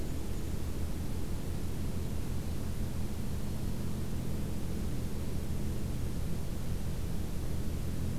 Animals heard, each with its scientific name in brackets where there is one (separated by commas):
Black-and-white Warbler (Mniotilta varia)